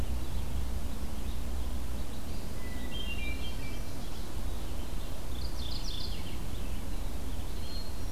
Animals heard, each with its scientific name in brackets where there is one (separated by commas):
Eastern Wood-Pewee (Contopus virens), Hermit Thrush (Catharus guttatus), Mourning Warbler (Geothlypis philadelphia), Red-eyed Vireo (Vireo olivaceus)